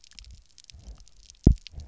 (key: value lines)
label: biophony, double pulse
recorder: SoundTrap 300